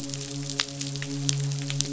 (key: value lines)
label: biophony, midshipman
recorder: SoundTrap 500